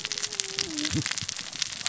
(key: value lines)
label: biophony, cascading saw
recorder: SoundTrap 600 or HydroMoth